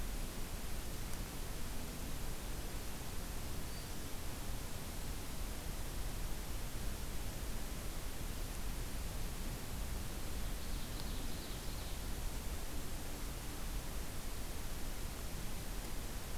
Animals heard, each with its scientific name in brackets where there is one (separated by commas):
Ovenbird (Seiurus aurocapilla), Blackburnian Warbler (Setophaga fusca)